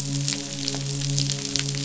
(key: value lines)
label: biophony, midshipman
recorder: SoundTrap 500